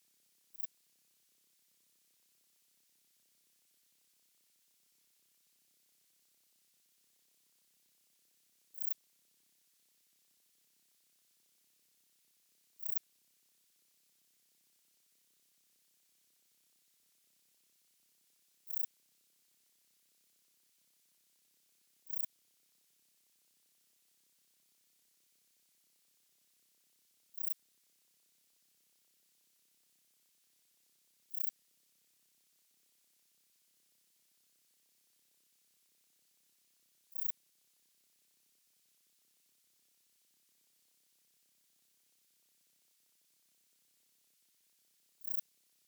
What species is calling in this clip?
Pterolepis spoliata